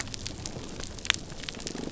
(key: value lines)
label: biophony, damselfish
recorder: SoundTrap 300